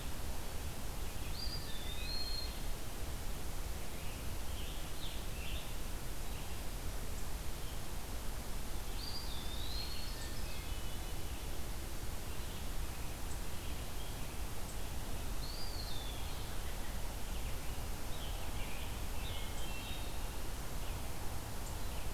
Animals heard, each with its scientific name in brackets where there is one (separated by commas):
Red-eyed Vireo (Vireo olivaceus), Ovenbird (Seiurus aurocapilla), Hermit Thrush (Catharus guttatus), Scarlet Tanager (Piranga olivacea), Eastern Wood-Pewee (Contopus virens)